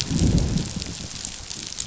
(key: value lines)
label: biophony, growl
recorder: SoundTrap 500